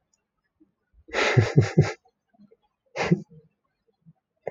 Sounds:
Laughter